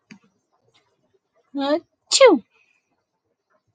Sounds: Sneeze